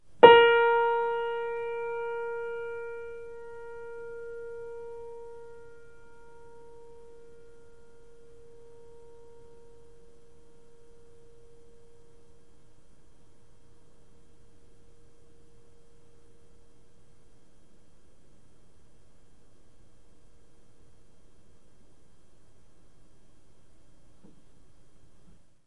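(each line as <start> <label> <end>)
0.2 An instrument is played once. 13.0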